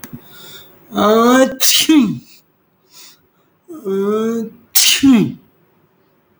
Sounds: Sneeze